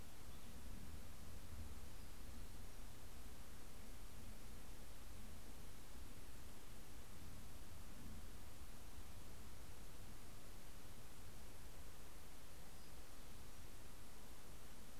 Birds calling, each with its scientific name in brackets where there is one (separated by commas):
Townsend's Warbler (Setophaga townsendi)